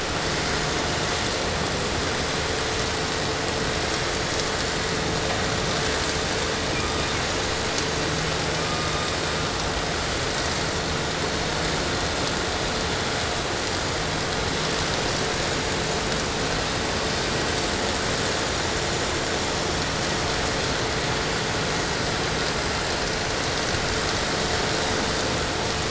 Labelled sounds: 6.5	7.5	killer whale, 0.84 to 5.3 kHz
8.4	9.7	killer whale, 0.82 to 5.2 kHz

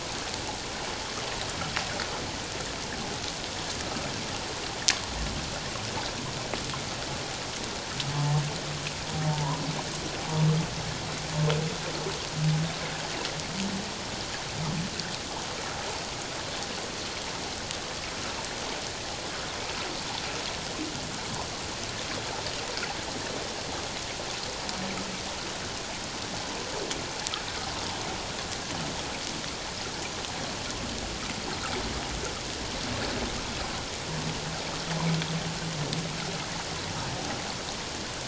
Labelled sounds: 9.3	9.6	humpback whale, 0.84 to 1.1 kHz

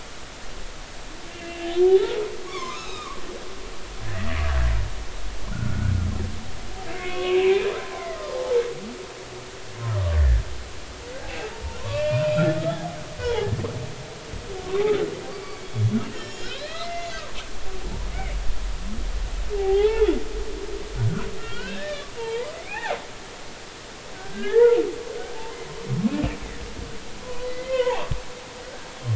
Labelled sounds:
1.3	3.2	humpback whale, 0.96 to 4.1 kHz
4.0	4.4	humpback whale, 1.6 to 2.0 kHz
5.5	8.6	humpback whale, 0.80 to 3.0 kHz
10.2	10.4	humpback whale, 1.6 to 2.0 kHz
11.2	12.2	humpback whale, 0.80 to 2.8 kHz
13.2	13.5	humpback whale, 0.80 to 3.0 kHz
15.3	18.4	humpback whale, 1.0 to 7.0 kHz
20.5	23.0	humpback whale, 0.80 to 3.8 kHz
24.1	24.8	humpback whale, 0.83 to 2.1 kHz
27.2	28.2	humpback whale, 0.80 to 3.3 kHz

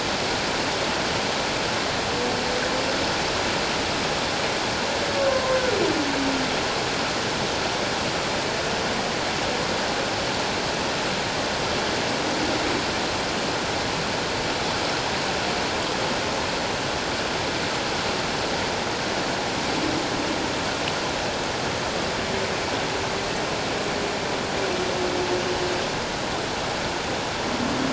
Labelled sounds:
5.3	5.6	humpback whale, 0.97 to 1.1 kHz

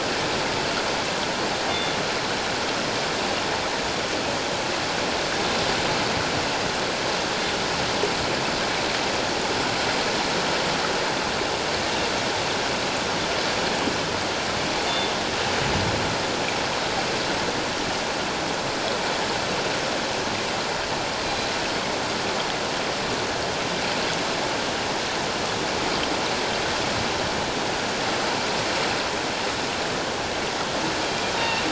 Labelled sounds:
1.7	2.0	killer whale, northern resident, G clan, 2.1 to 3.6 kHz
14.8	15.1	killer whale, northern resident, G clan, 3.5 to 3.6 kHz
21.2	21.5	killer whale, northern resident, G clan, 4.0 to 4.1 kHz
31.4	31.6	killer whale, northern resident, G clan, 2.6 to 2.8 kHz

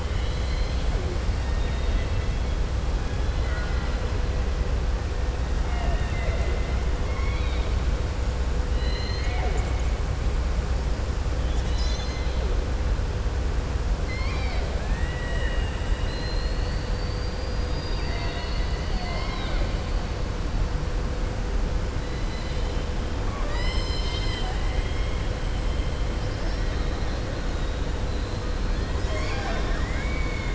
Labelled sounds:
0.0	0.9	killer whale, southern resident, 2.1 to 5.2 kHz
1.3	2.3	killer whale, southern resident, 1.8 to 3.8 kHz
3.1	4.0	killer whale, southern resident, 0.65 to 4.0 kHz
7.0	7.7	killer whale, southern resident, 1.1 to 4.6 kHz
8.7	9.7	killer whale, southern resident, 0.44 to 4.4 kHz
14.0	15.8	killer whale, southern resident, 1.0 to 5.5 kHz
22.2	22.7	killer whale, southern resident, 2.8 to 5.0 kHz
23.2	25.2	killer whale, southern resident, 0.76 to 7.7 kHz
28.6	30.5	killer whale, southern resident, 0.60 to 7.5 kHz

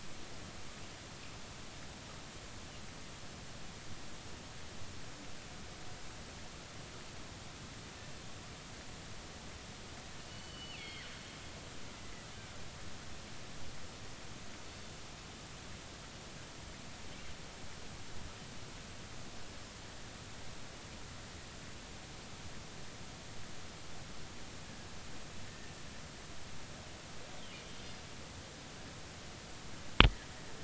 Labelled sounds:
10.3	11.1	killer whale, northern resident, G clan, GG subclan, call N23ii, 1.9 to 4.5 kHz
14.6	14.9	killer whale, northern resident, G clan, 4.4 to 4.5 kHz

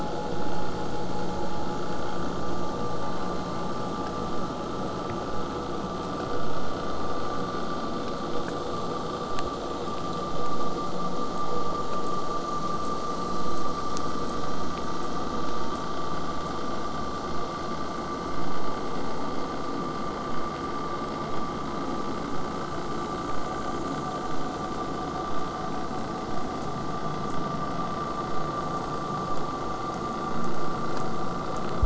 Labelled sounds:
12.0	17.3	killer whale, southern resident, J pod, 7.1 to 8.0 kHz

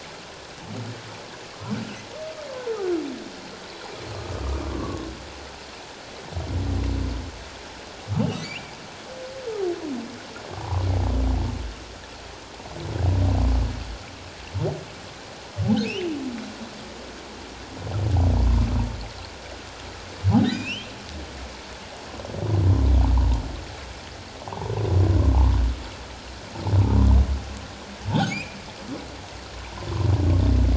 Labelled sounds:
4.4	5.1	humpback whale, 1.0 to 1.3 kHz
8.4	8.7	humpback whale, 2.1 to 2.5 kHz
10.6	10.8	humpback whale, 0.78 to 1.2 kHz
15.8	16.2	humpback whale, 2.2 to 3.2 kHz
20.4	20.9	humpback whale, 2.3 to 4.1 kHz
26.8	27.1	humpback whale, 0.88 to 1.1 kHz
28.3	28.6	humpback whale, 2.1 to 2.8 kHz

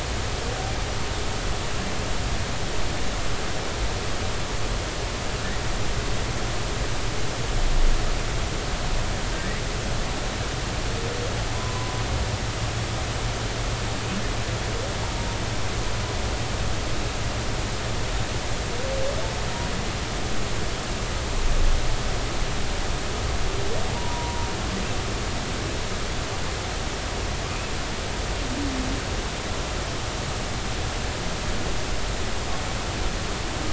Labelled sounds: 11.5	12.0	humpback whale, 0.96 to 1.1 kHz
23.9	24.5	humpback whale, 0.90 to 1.0 kHz

